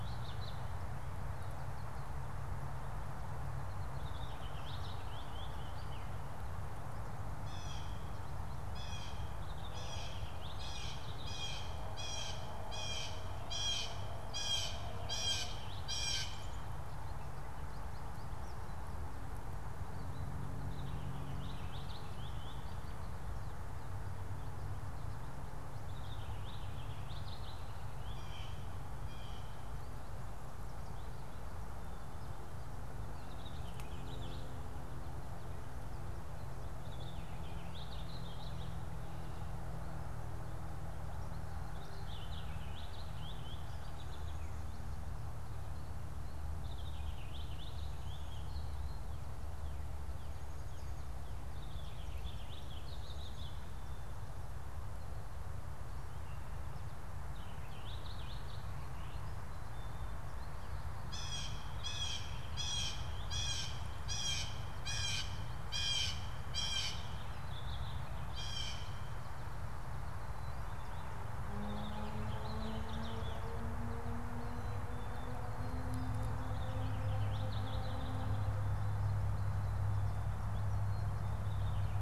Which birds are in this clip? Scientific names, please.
Haemorhous purpureus, Cyanocitta cristata